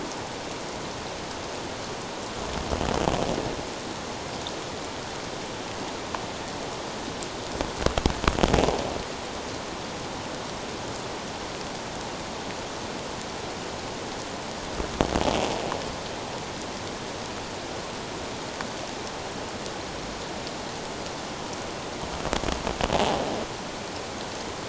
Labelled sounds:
22.9	23.2	croaking sound likely from a nearby submerged object, 0.78 to 0.94 kHz

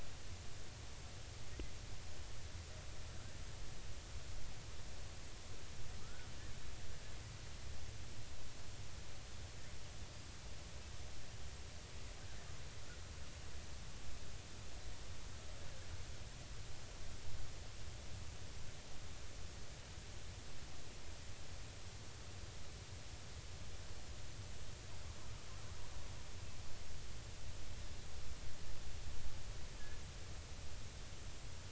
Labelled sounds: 6.0	6.3	killer whale, Bigg's (transient), 1.2 to 1.6 kHz

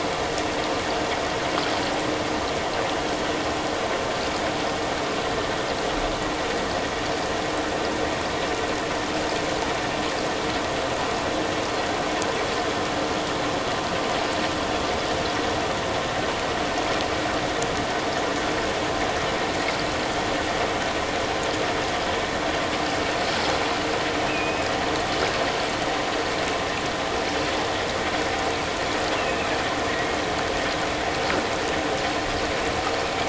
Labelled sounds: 24.3	24.7	killer whale, offshore, 2.4 to 2.7 kHz
29.1	29.5	killer whale, offshore, 2.4 to 2.9 kHz

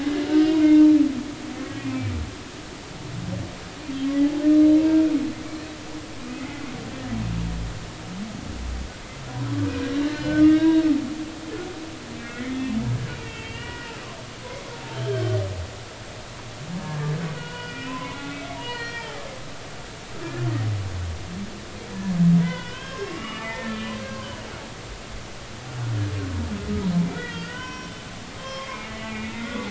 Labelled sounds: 1.8	2.1	humpback whale, 2.3 to 2.5 kHz
6.4	6.6	humpback whale, 1.9 to 2.2 kHz
10.1	10.8	humpback whale, 0.90 to 4.3 kHz
12.3	12.7	humpback whale, 1.9 to 2.3 kHz
13.2	14.0	humpback whale, 1.2 to 3.3 kHz
15.1	15.4	humpback whale, 1.4 to 1.7 kHz
17.4	19.2	humpback whale, 0.80 to 4.9 kHz
20.2	20.5	humpback whale, 1.6 to 1.8 kHz
22.4	24.0	humpback whale, 0.90 to 3.6 kHz
27.1	28.0	humpback whale, 0.96 to 5.7 kHz
28.4	29.6	humpback whale, 0.96 to 3.3 kHz

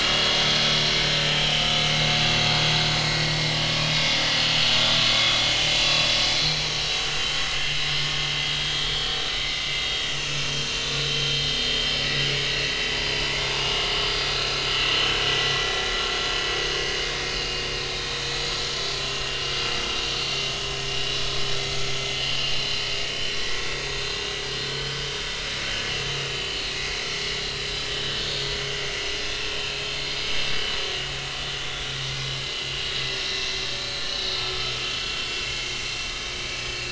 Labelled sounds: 1.5	2.5	vessel noise, 1.2 to 4.5 kHz
3.1	3.4	vessel noise, 1.8 to 2.1 kHz
4.0	4.5	vessel noise, 2.9 to 3.6 kHz
4.8	6.1	vessel noise, 2.6 to 4.9 kHz
6.4	7.0	vessel noise, 3.9 to 5.6 kHz
7.8	9.1	vessel noise, 3.1 to 5.3 kHz
9.3	10.1	vessel noise, 2.0 to 4.7 kHz
10.9	11.8	vessel noise, 3.0 to 4.3 kHz
12.8	14.5	vessel noise, 0.86 to 5.9 kHz
15.3	15.7	vessel noise, 1.9 to 2.0 kHz
17.9	18.3	vessel noise, 3.6 to 3.9 kHz
18.8	19.4	vessel noise, 2.7 to 3.5 kHz
20.2	20.4	vessel noise, 4.3 to 4.5 kHz
20.8	21.1	vessel noise, 5.3 to 5.5 kHz
22.6	22.8	vessel noise, 3.9 to 4.2 kHz
23.6	25.1	vessel noise, 1.4 to 3.9 kHz
29.5	30.4	vessel noise, 2.5 to 6.2 kHz
31.6	32.3	vessel noise, 2.0 to 3.6 kHz
34.3	35.1	vessel noise, 1.2 to 4.4 kHz
35.5	36.3	vessel noise, 2.1 to 3.8 kHz

